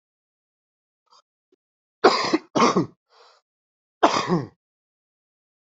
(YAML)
expert_labels:
- quality: ok
  cough_type: wet
  dyspnea: false
  wheezing: false
  stridor: false
  choking: false
  congestion: false
  nothing: true
  diagnosis: lower respiratory tract infection
  severity: mild